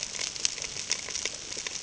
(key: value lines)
label: ambient
recorder: HydroMoth